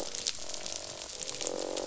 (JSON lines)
{"label": "biophony, croak", "recorder": "SoundTrap 500"}